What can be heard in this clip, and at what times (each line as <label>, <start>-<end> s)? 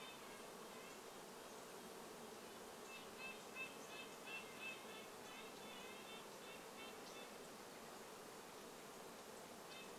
Red-breasted Nuthatch song, 0-10 s
insect buzz, 0-10 s